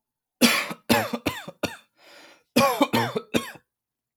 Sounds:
Cough